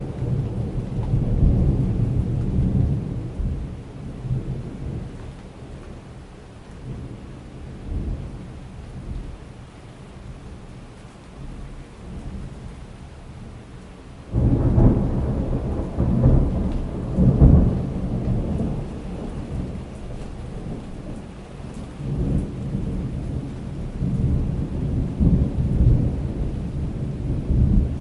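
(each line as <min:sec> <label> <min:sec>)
0:00.0 Constant background rain. 0:28.0
0:00.4 Distant thunder roars. 0:03.1
0:10.5 Human footsteps on water in the distance. 0:11.8
0:14.1 Distant thunder roars. 0:18.3
0:21.7 Distant thunder sounds weakly. 0:22.8
0:24.0 Thunder roars in the distance. 0:26.4
0:27.4 Thunder roars. 0:28.0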